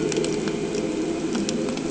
{"label": "anthrophony, boat engine", "recorder": "HydroMoth"}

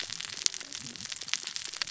{"label": "biophony, cascading saw", "recorder": "SoundTrap 600 or HydroMoth"}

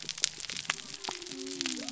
{"label": "biophony", "recorder": "SoundTrap 300"}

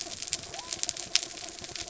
{"label": "anthrophony, mechanical", "recorder": "SoundTrap 300"}
{"label": "biophony", "recorder": "SoundTrap 300"}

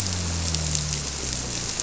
{"label": "biophony", "recorder": "SoundTrap 300"}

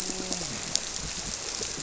{"label": "biophony, grouper", "recorder": "SoundTrap 300"}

